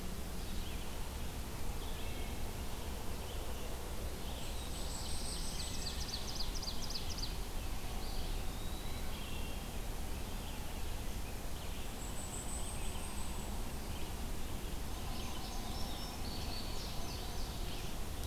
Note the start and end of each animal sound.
[0.00, 18.26] Red-eyed Vireo (Vireo olivaceus)
[1.82, 2.38] Wood Thrush (Hylocichla mustelina)
[4.27, 6.06] Black-throated Blue Warbler (Setophaga caerulescens)
[4.27, 6.31] Blackpoll Warbler (Setophaga striata)
[5.06, 7.57] Ovenbird (Seiurus aurocapilla)
[5.56, 6.18] Wood Thrush (Hylocichla mustelina)
[7.91, 9.15] Eastern Wood-Pewee (Contopus virens)
[8.94, 9.82] Wood Thrush (Hylocichla mustelina)
[11.84, 13.58] Blackpoll Warbler (Setophaga striata)
[14.83, 17.88] Indigo Bunting (Passerina cyanea)

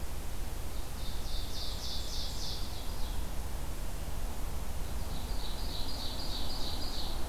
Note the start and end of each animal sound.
[0.65, 3.50] Ovenbird (Seiurus aurocapilla)
[4.87, 7.28] Ovenbird (Seiurus aurocapilla)

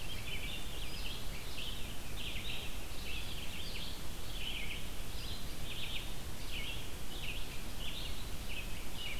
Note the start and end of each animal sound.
[0.00, 9.19] Red-eyed Vireo (Vireo olivaceus)

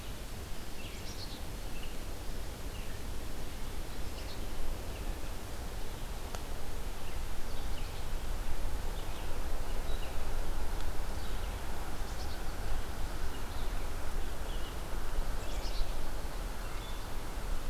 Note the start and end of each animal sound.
[0.00, 17.69] Red-eyed Vireo (Vireo olivaceus)
[0.86, 1.43] Black-capped Chickadee (Poecile atricapillus)
[3.88, 4.36] Black-capped Chickadee (Poecile atricapillus)
[11.98, 12.51] Black-capped Chickadee (Poecile atricapillus)
[15.19, 16.00] Black-capped Chickadee (Poecile atricapillus)

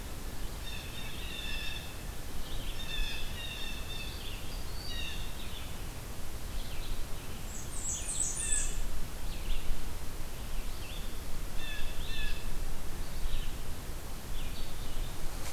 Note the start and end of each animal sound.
[0.48, 2.01] Blue Jay (Cyanocitta cristata)
[2.75, 4.33] Blue Jay (Cyanocitta cristata)
[4.83, 5.36] Blue Jay (Cyanocitta cristata)
[5.07, 15.24] Red-eyed Vireo (Vireo olivaceus)
[7.27, 8.71] Blackburnian Warbler (Setophaga fusca)
[8.21, 8.80] Blue Jay (Cyanocitta cristata)
[11.50, 12.46] Blue Jay (Cyanocitta cristata)

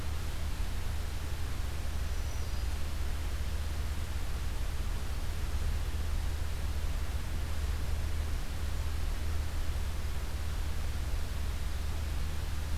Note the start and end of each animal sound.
[1.65, 3.02] Black-throated Green Warbler (Setophaga virens)

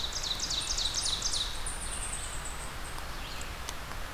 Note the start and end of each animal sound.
[0.00, 1.67] Ovenbird (Seiurus aurocapilla)
[0.00, 4.14] Red-eyed Vireo (Vireo olivaceus)
[1.43, 3.01] unidentified call

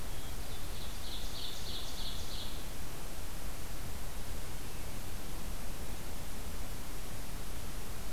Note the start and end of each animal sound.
[0.00, 0.68] Hermit Thrush (Catharus guttatus)
[0.17, 2.65] Ovenbird (Seiurus aurocapilla)

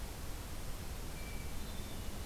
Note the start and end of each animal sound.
[1.09, 2.25] Hermit Thrush (Catharus guttatus)

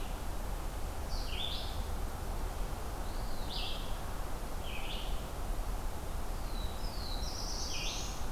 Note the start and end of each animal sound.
[0.00, 8.31] Red-eyed Vireo (Vireo olivaceus)
[2.93, 3.64] Eastern Wood-Pewee (Contopus virens)
[6.17, 8.29] Black-throated Blue Warbler (Setophaga caerulescens)

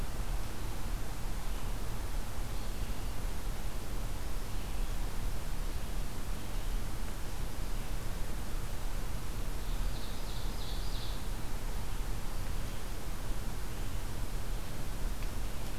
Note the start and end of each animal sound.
[9.48, 11.33] Ovenbird (Seiurus aurocapilla)

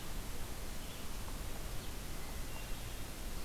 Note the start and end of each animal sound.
[0.00, 2.69] Red-eyed Vireo (Vireo olivaceus)
[1.73, 3.15] Hermit Thrush (Catharus guttatus)

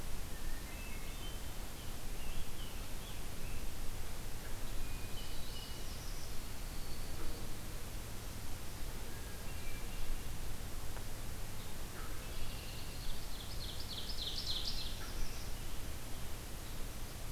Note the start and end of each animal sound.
[0.21, 1.52] Hermit Thrush (Catharus guttatus)
[1.54, 3.71] Scarlet Tanager (Piranga olivacea)
[4.61, 5.95] Hermit Thrush (Catharus guttatus)
[5.10, 6.36] Northern Parula (Setophaga americana)
[6.03, 7.50] Dark-eyed Junco (Junco hyemalis)
[9.01, 10.10] Hermit Thrush (Catharus guttatus)
[12.09, 13.13] Red-winged Blackbird (Agelaius phoeniceus)
[13.09, 15.08] Ovenbird (Seiurus aurocapilla)
[14.76, 15.63] Northern Parula (Setophaga americana)

